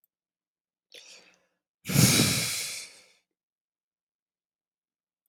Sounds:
Sigh